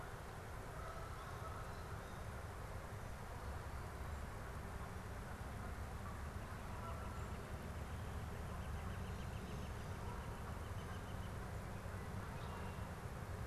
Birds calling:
Northern Flicker (Colaptes auratus), Canada Goose (Branta canadensis)

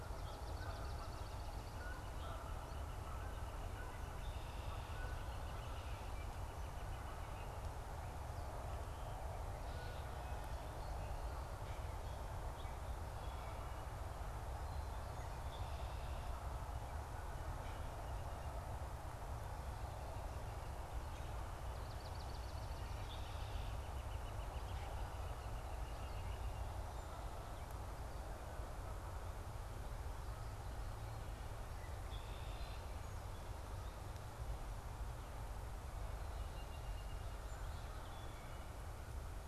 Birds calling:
Northern Flicker (Colaptes auratus), Swamp Sparrow (Melospiza georgiana), Red-winged Blackbird (Agelaius phoeniceus)

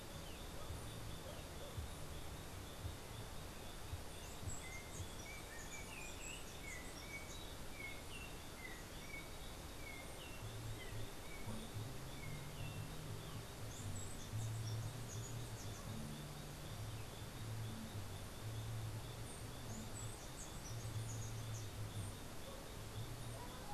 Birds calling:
Yellow-backed Oriole (Icterus chrysater), Chestnut-capped Brushfinch (Arremon brunneinucha)

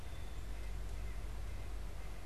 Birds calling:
White-breasted Nuthatch (Sitta carolinensis)

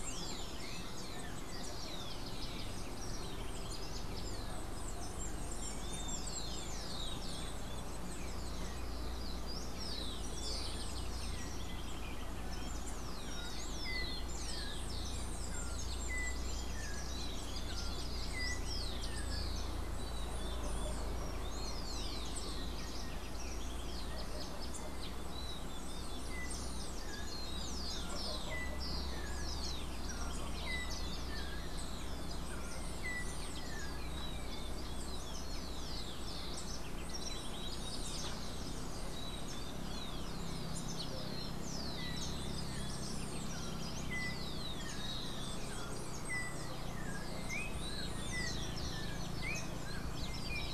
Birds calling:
Rufous-collared Sparrow (Zonotrichia capensis), Yellow-backed Oriole (Icterus chrysater)

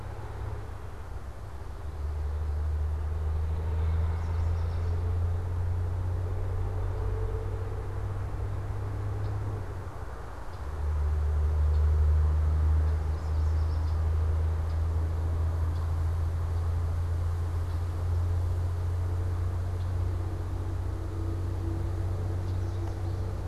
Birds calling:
Red-winged Blackbird (Agelaius phoeniceus), Yellow Warbler (Setophaga petechia)

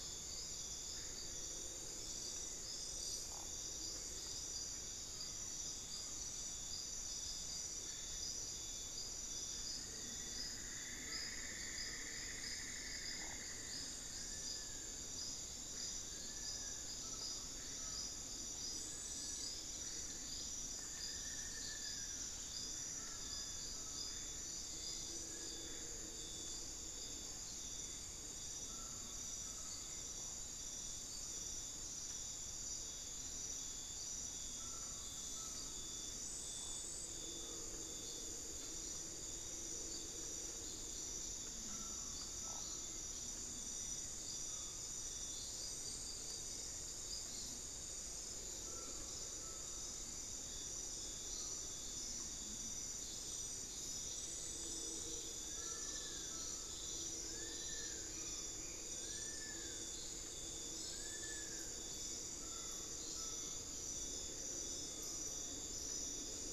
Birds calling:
Amazonian Barred-Woodcreeper (Dendrocolaptes certhia), Buckley's Forest-Falcon (Micrastur buckleyi), Cinnamon-throated Woodcreeper (Dendrexetastes rufigula), Long-billed Woodcreeper (Nasica longirostris)

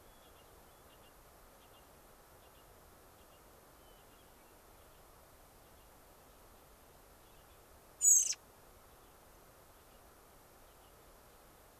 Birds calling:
American Robin (Turdus migratorius), Hermit Thrush (Catharus guttatus)

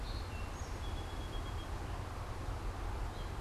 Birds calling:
Song Sparrow (Melospiza melodia), Gray Catbird (Dumetella carolinensis)

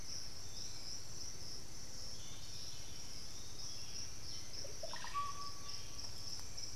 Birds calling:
Piratic Flycatcher (Legatus leucophaius), Black-billed Thrush (Turdus ignobilis), Russet-backed Oropendola (Psarocolius angustifrons)

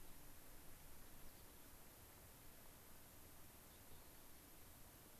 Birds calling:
Mountain Chickadee (Poecile gambeli)

